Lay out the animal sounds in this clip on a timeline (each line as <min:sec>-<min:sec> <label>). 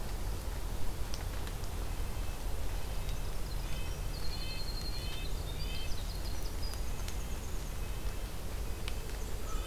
0:01.8-0:06.0 Red-breasted Nuthatch (Sitta canadensis)
0:03.0-0:07.8 Winter Wren (Troglodytes hiemalis)
0:06.7-0:09.7 Red-breasted Nuthatch (Sitta canadensis)
0:09.0-0:09.7 Black-and-white Warbler (Mniotilta varia)